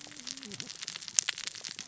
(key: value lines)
label: biophony, cascading saw
recorder: SoundTrap 600 or HydroMoth